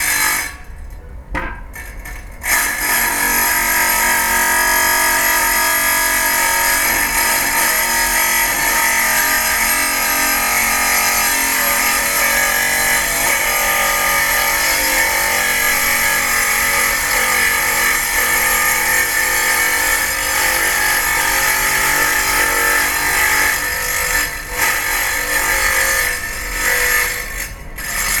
Is someone sobbing?
no